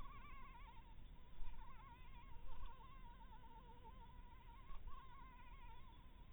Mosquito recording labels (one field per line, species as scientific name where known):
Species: Anopheles maculatus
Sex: female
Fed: blood-fed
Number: one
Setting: cup